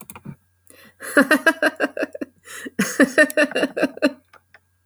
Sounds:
Laughter